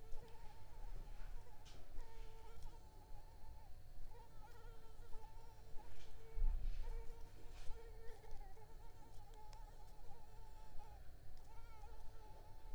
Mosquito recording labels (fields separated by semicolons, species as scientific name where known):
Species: Culex tigripes; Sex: female; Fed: unfed; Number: one; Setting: cup